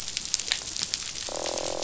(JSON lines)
{"label": "biophony, croak", "recorder": "SoundTrap 500"}